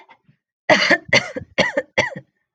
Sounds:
Cough